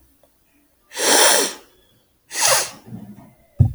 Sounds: Sneeze